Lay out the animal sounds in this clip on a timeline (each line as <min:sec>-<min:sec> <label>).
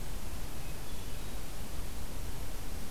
0:00.6-0:01.5 Hermit Thrush (Catharus guttatus)